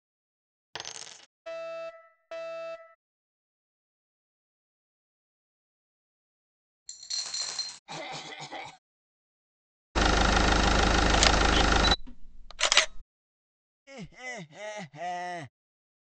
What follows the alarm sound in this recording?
coin